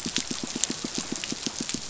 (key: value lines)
label: biophony, pulse
recorder: SoundTrap 500